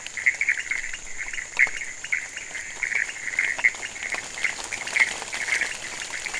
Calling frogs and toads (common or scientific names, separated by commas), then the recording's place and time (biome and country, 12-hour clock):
pointedbelly frog, Pithecopus azureus
Cerrado, Brazil, 3:30am